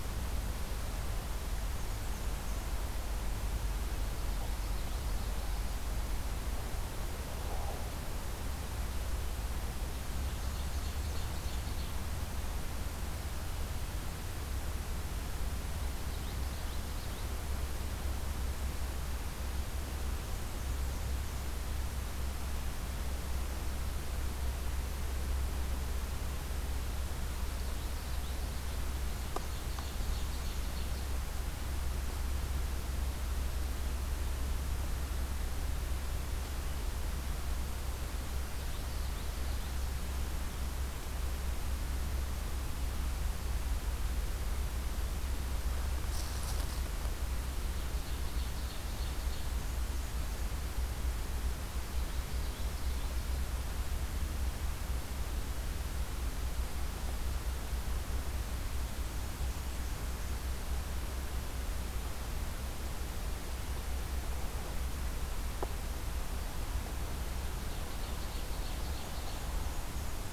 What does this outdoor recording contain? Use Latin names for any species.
Mniotilta varia, Geothlypis trichas, Seiurus aurocapilla